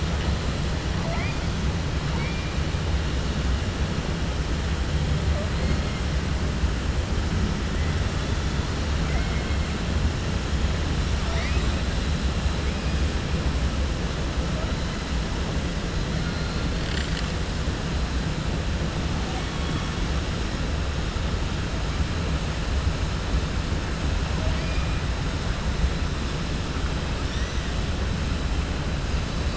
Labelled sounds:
9.0	9.6	killer whale, 0.67 to 3.1 kHz
11.2	11.8	killer whale, 0.67 to 5.8 kHz
16.8	17.3	killer whale, 6.6 to 8.0 kHz

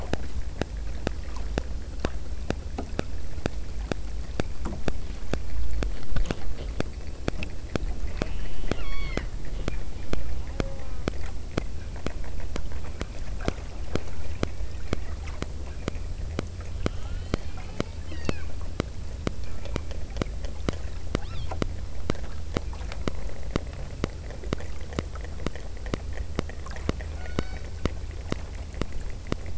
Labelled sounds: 8.1	9.3	killer whale, southern Alaska resident, 0.68 to 5.8 kHz
10.5	11.2	killer whale, southern Alaska resident, 0.43 to 1.7 kHz
16.9	18.7	killer whale, southern Alaska resident, 0.64 to 6.0 kHz
21.2	21.7	killer whale, southern Alaska resident, 0.73 to 5.5 kHz
27.2	27.9	killer whale, southern Alaska resident, 0.57 to 6.4 kHz

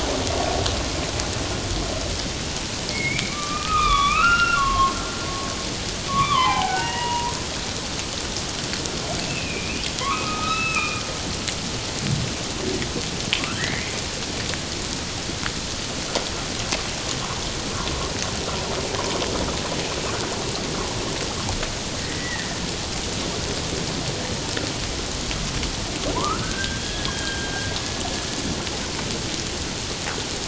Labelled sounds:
2.9	5.0	humpback whale, 0.97 to 5.6 kHz
6.1	7.3	humpback whale, 0.78 to 3.6 kHz
9.3	11.0	humpback whale, 0.97 to 4.0 kHz
13.4	13.9	humpback whale, 1.1 to 2.3 kHz
22.0	22.6	humpback whale, 1.8 to 2.1 kHz
26.1	27.5	humpback whale, 0.88 to 3.3 kHz

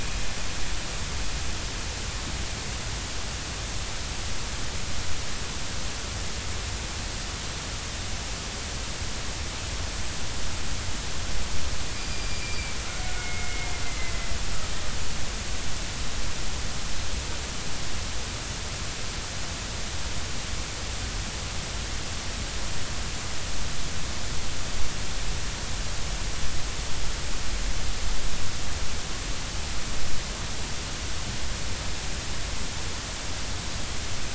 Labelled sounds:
12.0	12.8	killer whale, Bigg's (transient), 2.2 to 4.9 kHz
13.1	14.3	killer whale, Bigg's (transient), 2.0 to 2.2 kHz

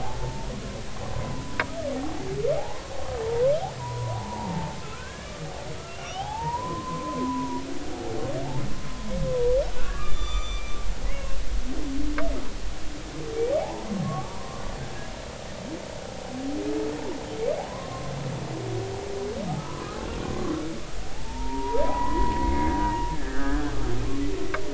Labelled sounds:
0.0	0.5	humpback whale, 0.80 to 0.96 kHz
1.1	1.6	humpback whale, 0.90 to 1.1 kHz
2.6	3.5	humpback whale, 0.80 to 1.1 kHz
3.8	5.5	humpback whale, 0.80 to 1.8 kHz
5.9	7.6	humpback whale, 0.80 to 3.5 kHz
9.8	10.8	humpback whale, 1.1 to 7.1 kHz
11.1	11.4	humpback whale, 2.7 to 2.8 kHz
13.6	14.6	humpback whale, 0.80 to 1.2 kHz
17.7	18.1	humpback whale, 0.96 to 1.1 kHz
19.5	19.8	humpback whale, 1.2 to 1.3 kHz
21.0	22.8	humpback whale, 0.80 to 2.3 kHz
23.1	23.7	humpback whale, 1.3 to 1.9 kHz

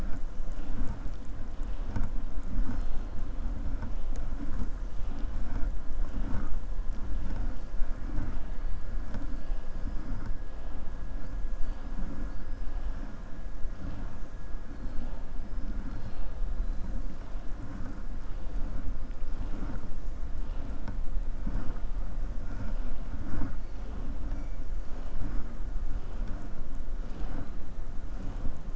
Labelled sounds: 15.8	16.3	killer whale, southern resident, 2.4 to 5.0 kHz

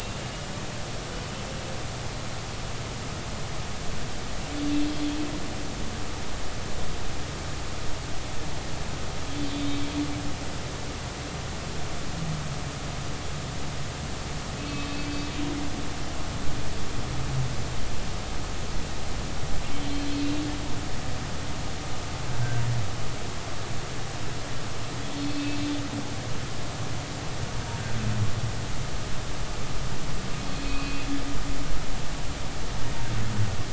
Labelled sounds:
1.1	1.3	humpback whale, 2.9 to 3.0 kHz
14.6	14.9	humpback whale, 2.5 to 2.7 kHz
25.1	25.6	humpback whale, 2.5 to 4.4 kHz
30.5	31.1	humpback whale, 2.4 to 4.5 kHz

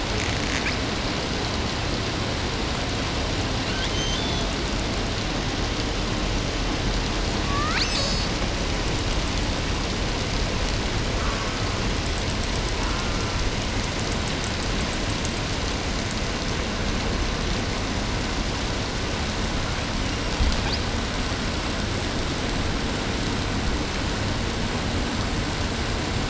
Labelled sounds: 0.1	1.1	killer whale, southern resident, L pod, call S08i, 1.3 to 8.0 kHz
3.5	4.6	killer whale, southern resident, 1.1 to 8.0 kHz
7.2	8.4	killer whale, southern resident, L pod, call S02iii, 0.26 to 8.0 kHz
11.1	12.0	killer whale, southern resident, J pod, call S04, 0.36 to 1.8 kHz
12.7	13.5	killer whale, southern resident, J pod, call S04, 0.58 to 1.6 kHz
20.0	21.1	killer whale, southern resident, 0.52 to 8.0 kHz

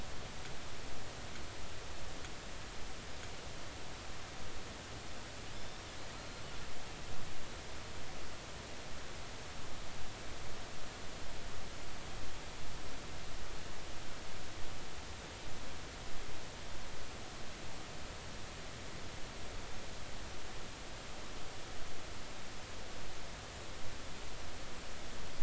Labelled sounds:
5.6	5.8	killer whale, 3.4 to 3.6 kHz
6.2	6.4	killer whale, 4.1 to 4.3 kHz

